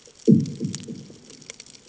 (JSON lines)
{"label": "anthrophony, bomb", "recorder": "HydroMoth"}